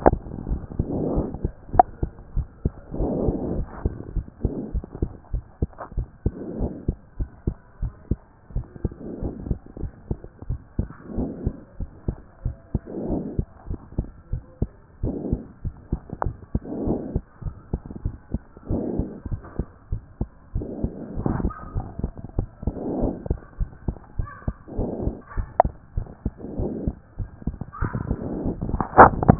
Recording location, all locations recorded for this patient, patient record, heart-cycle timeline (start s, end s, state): pulmonary valve (PV)
aortic valve (AV)+pulmonary valve (PV)+tricuspid valve (TV)+mitral valve (MV)
#Age: Child
#Sex: Male
#Height: 122.0 cm
#Weight: 24.2 kg
#Pregnancy status: False
#Murmur: Absent
#Murmur locations: nan
#Most audible location: nan
#Systolic murmur timing: nan
#Systolic murmur shape: nan
#Systolic murmur grading: nan
#Systolic murmur pitch: nan
#Systolic murmur quality: nan
#Diastolic murmur timing: nan
#Diastolic murmur shape: nan
#Diastolic murmur grading: nan
#Diastolic murmur pitch: nan
#Diastolic murmur quality: nan
#Outcome: Abnormal
#Campaign: 2014 screening campaign
0.00	3.54	unannotated
3.54	3.66	S1
3.66	3.84	systole
3.84	3.94	S2
3.94	4.14	diastole
4.14	4.26	S1
4.26	4.42	systole
4.42	4.52	S2
4.52	4.72	diastole
4.72	4.84	S1
4.84	5.00	systole
5.00	5.10	S2
5.10	5.32	diastole
5.32	5.44	S1
5.44	5.60	systole
5.60	5.70	S2
5.70	5.96	diastole
5.96	6.08	S1
6.08	6.24	systole
6.24	6.34	S2
6.34	6.58	diastole
6.58	6.72	S1
6.72	6.86	systole
6.86	6.96	S2
6.96	7.18	diastole
7.18	7.30	S1
7.30	7.46	systole
7.46	7.56	S2
7.56	7.82	diastole
7.82	7.92	S1
7.92	8.10	systole
8.10	8.18	S2
8.18	8.54	diastole
8.54	8.66	S1
8.66	8.82	systole
8.82	8.92	S2
8.92	9.22	diastole
9.22	9.34	S1
9.34	9.48	systole
9.48	9.58	S2
9.58	9.80	diastole
9.80	9.92	S1
9.92	10.08	systole
10.08	10.18	S2
10.18	10.48	diastole
10.48	10.60	S1
10.60	10.78	systole
10.78	10.88	S2
10.88	11.16	diastole
11.16	11.30	S1
11.30	11.44	systole
11.44	11.54	S2
11.54	11.80	diastole
11.80	11.90	S1
11.90	12.06	systole
12.06	12.16	S2
12.16	12.44	diastole
12.44	12.56	S1
12.56	12.72	systole
12.72	12.80	S2
12.80	13.08	diastole
13.08	13.24	S1
13.24	13.36	systole
13.36	13.46	S2
13.46	13.68	diastole
13.68	13.78	S1
13.78	13.96	systole
13.96	14.06	S2
14.06	14.32	diastole
14.32	14.42	S1
14.42	14.60	systole
14.60	14.70	S2
14.70	15.02	diastole
15.02	15.16	S1
15.16	15.30	systole
15.30	15.40	S2
15.40	15.64	diastole
15.64	15.74	S1
15.74	15.90	systole
15.90	16.00	S2
16.00	16.24	diastole
16.24	16.34	S1
16.34	16.53	systole
16.53	16.61	S2
16.61	16.86	diastole
16.86	16.97	S1
16.97	17.12	systole
17.12	17.24	S2
17.24	17.44	diastole
17.44	17.54	S1
17.54	17.72	systole
17.72	17.80	S2
17.80	18.04	diastole
18.04	18.16	S1
18.16	18.32	systole
18.32	18.42	S2
18.42	18.70	diastole
18.70	18.84	S1
18.84	18.98	systole
18.98	19.08	S2
19.08	19.30	diastole
19.30	19.40	S1
19.40	19.58	systole
19.58	19.66	S2
19.66	19.90	diastole
19.90	20.02	S1
20.02	20.20	systole
20.20	20.28	S2
20.28	20.54	diastole
20.54	20.66	S1
20.66	20.82	systole
20.82	20.92	S2
20.92	21.16	diastole
21.16	29.39	unannotated